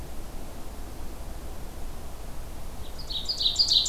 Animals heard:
Ovenbird (Seiurus aurocapilla)

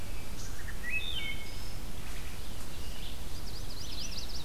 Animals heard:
Red-eyed Vireo (Vireo olivaceus), Chestnut-sided Warbler (Setophaga pensylvanica), Wood Thrush (Hylocichla mustelina)

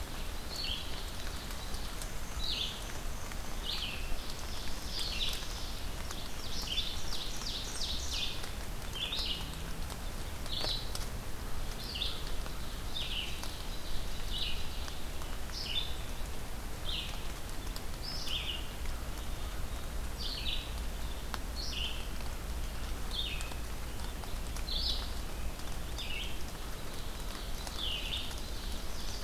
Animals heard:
Ovenbird (Seiurus aurocapilla), Black-capped Chickadee (Poecile atricapillus), Red-eyed Vireo (Vireo olivaceus), Black-and-white Warbler (Mniotilta varia), Chestnut-sided Warbler (Setophaga pensylvanica)

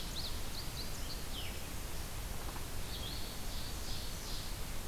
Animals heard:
Ovenbird (Seiurus aurocapilla), Hermit Thrush (Catharus guttatus), Indigo Bunting (Passerina cyanea)

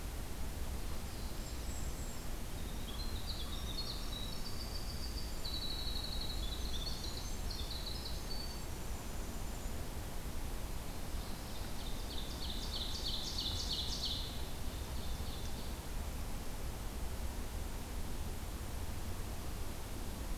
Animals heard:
Ovenbird (Seiurus aurocapilla), Brown Creeper (Certhia americana), Winter Wren (Troglodytes hiemalis), Golden-crowned Kinglet (Regulus satrapa)

